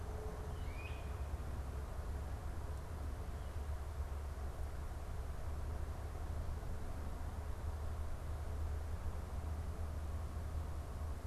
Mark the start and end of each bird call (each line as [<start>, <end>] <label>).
[0.48, 1.18] Great Crested Flycatcher (Myiarchus crinitus)